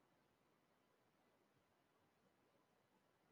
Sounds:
Cough